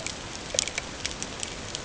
{"label": "ambient", "recorder": "HydroMoth"}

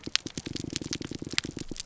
{"label": "biophony, grouper groan", "recorder": "SoundTrap 300"}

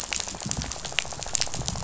{"label": "biophony, rattle", "recorder": "SoundTrap 500"}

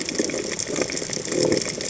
{"label": "biophony", "recorder": "HydroMoth"}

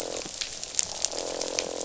{"label": "biophony, croak", "recorder": "SoundTrap 500"}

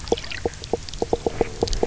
{"label": "biophony, knock croak", "recorder": "SoundTrap 300"}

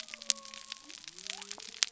{"label": "biophony", "recorder": "SoundTrap 300"}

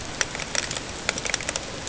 {"label": "ambient", "recorder": "HydroMoth"}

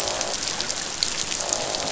{"label": "biophony, croak", "recorder": "SoundTrap 500"}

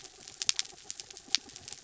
{"label": "anthrophony, mechanical", "recorder": "SoundTrap 300"}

